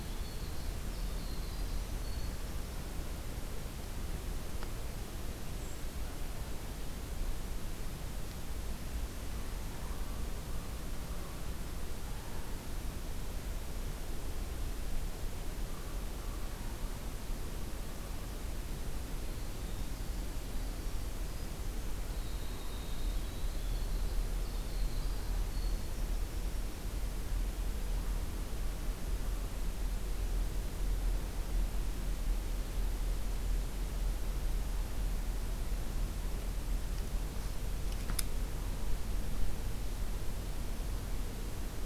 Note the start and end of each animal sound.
[0.00, 2.62] Winter Wren (Troglodytes hiemalis)
[8.99, 11.56] Common Raven (Corvus corax)
[15.38, 17.01] Common Raven (Corvus corax)
[18.97, 26.76] Winter Wren (Troglodytes hiemalis)

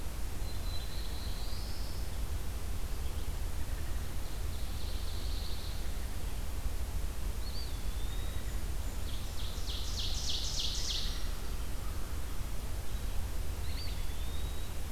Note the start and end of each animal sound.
[0.28, 2.13] Black-throated Blue Warbler (Setophaga caerulescens)
[4.31, 6.19] Ovenbird (Seiurus aurocapilla)
[7.32, 8.69] Eastern Wood-Pewee (Contopus virens)
[8.14, 9.63] Blackburnian Warbler (Setophaga fusca)
[9.01, 11.41] Ovenbird (Seiurus aurocapilla)
[10.88, 12.50] American Crow (Corvus brachyrhynchos)
[13.50, 14.84] Eastern Wood-Pewee (Contopus virens)

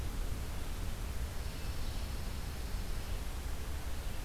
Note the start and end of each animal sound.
[1.25, 3.14] Pine Warbler (Setophaga pinus)

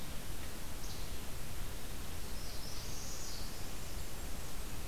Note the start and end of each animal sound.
[0.76, 1.12] Least Flycatcher (Empidonax minimus)
[2.29, 3.66] Northern Parula (Setophaga americana)
[3.40, 4.87] Golden-crowned Kinglet (Regulus satrapa)

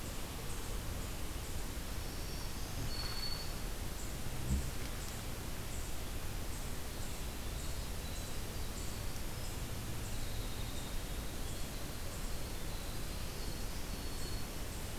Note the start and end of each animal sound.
[0.00, 14.98] Eastern Chipmunk (Tamias striatus)
[1.76, 4.14] Black-throated Green Warbler (Setophaga virens)
[9.80, 14.36] Winter Wren (Troglodytes hiemalis)
[13.36, 14.62] Black-throated Green Warbler (Setophaga virens)

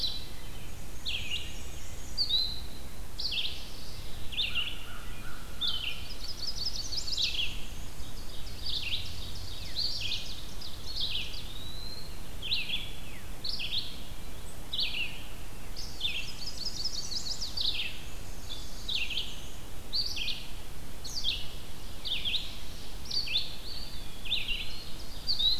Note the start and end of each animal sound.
[0.00, 15.12] Red-eyed Vireo (Vireo olivaceus)
[0.38, 2.76] Black-and-white Warbler (Mniotilta varia)
[3.38, 4.54] Mourning Warbler (Geothlypis philadelphia)
[4.26, 6.49] American Crow (Corvus brachyrhynchos)
[5.85, 7.58] Chestnut-sided Warbler (Setophaga pensylvanica)
[7.78, 11.47] Ovenbird (Seiurus aurocapilla)
[10.61, 12.52] Eastern Wood-Pewee (Contopus virens)
[15.68, 25.59] Red-eyed Vireo (Vireo olivaceus)
[15.88, 17.60] Black-and-white Warbler (Mniotilta varia)
[16.20, 17.77] Chestnut-sided Warbler (Setophaga pensylvanica)
[17.91, 19.72] Black-and-white Warbler (Mniotilta varia)
[21.54, 23.16] Ovenbird (Seiurus aurocapilla)
[23.40, 25.26] Eastern Wood-Pewee (Contopus virens)
[24.26, 25.59] Ovenbird (Seiurus aurocapilla)

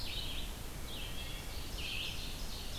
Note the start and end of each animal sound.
[0.00, 2.78] Red-eyed Vireo (Vireo olivaceus)
[0.67, 1.47] Wood Thrush (Hylocichla mustelina)
[1.19, 2.78] Ovenbird (Seiurus aurocapilla)

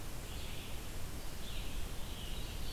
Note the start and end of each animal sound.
[0.09, 2.72] Red-eyed Vireo (Vireo olivaceus)
[2.08, 2.72] Ovenbird (Seiurus aurocapilla)

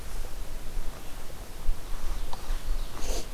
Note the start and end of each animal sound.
[1.66, 3.34] Ovenbird (Seiurus aurocapilla)

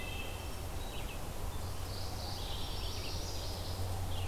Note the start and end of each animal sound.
[0.00, 0.87] Wood Thrush (Hylocichla mustelina)
[0.00, 4.27] Red-eyed Vireo (Vireo olivaceus)
[1.55, 2.73] Mourning Warbler (Geothlypis philadelphia)
[2.54, 3.78] Magnolia Warbler (Setophaga magnolia)

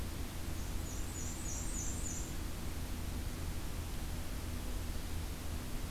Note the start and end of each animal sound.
[0.57, 2.40] Black-and-white Warbler (Mniotilta varia)

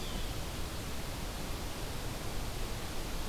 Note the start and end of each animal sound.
[0.00, 0.36] Yellow-bellied Sapsucker (Sphyrapicus varius)

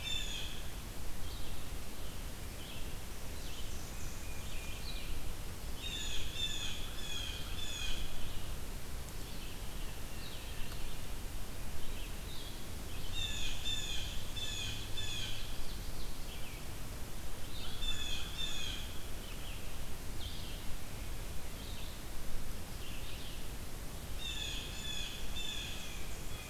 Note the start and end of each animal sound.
[0.00, 1.32] Blue Jay (Cyanocitta cristata)
[0.00, 26.49] Red-eyed Vireo (Vireo olivaceus)
[3.02, 4.81] Blackburnian Warbler (Setophaga fusca)
[5.68, 8.24] Blue Jay (Cyanocitta cristata)
[12.99, 15.84] Blue Jay (Cyanocitta cristata)
[17.58, 19.08] Blue Jay (Cyanocitta cristata)
[24.02, 26.49] Blue Jay (Cyanocitta cristata)

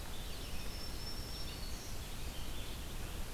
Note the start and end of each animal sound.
[0.00, 3.34] Red-eyed Vireo (Vireo olivaceus)
[0.00, 3.34] Winter Wren (Troglodytes hiemalis)
[0.51, 1.92] Black-throated Green Warbler (Setophaga virens)

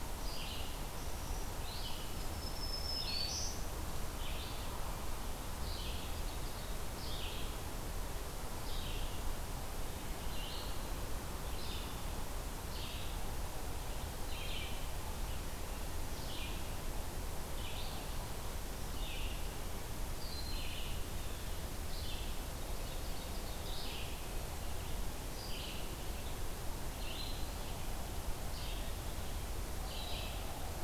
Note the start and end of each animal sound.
[0.00, 30.83] Red-eyed Vireo (Vireo olivaceus)
[1.95, 3.85] Black-throated Green Warbler (Setophaga virens)
[20.08, 20.86] Broad-winged Hawk (Buteo platypterus)
[22.46, 23.88] Ovenbird (Seiurus aurocapilla)

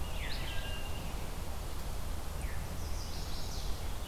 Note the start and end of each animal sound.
[0.26, 1.01] Wood Thrush (Hylocichla mustelina)
[2.34, 2.72] Veery (Catharus fuscescens)
[2.64, 4.08] Chestnut-sided Warbler (Setophaga pensylvanica)

